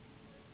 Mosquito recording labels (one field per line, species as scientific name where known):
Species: Anopheles gambiae s.s.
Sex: female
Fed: unfed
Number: one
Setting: insect culture